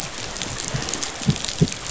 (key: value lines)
label: biophony
recorder: SoundTrap 500